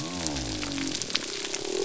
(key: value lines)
label: biophony
recorder: SoundTrap 300